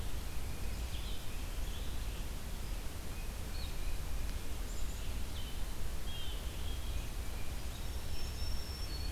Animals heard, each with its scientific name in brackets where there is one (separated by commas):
Red-eyed Vireo (Vireo olivaceus), Tufted Titmouse (Baeolophus bicolor), Blue Jay (Cyanocitta cristata), Black-capped Chickadee (Poecile atricapillus), Black-throated Green Warbler (Setophaga virens)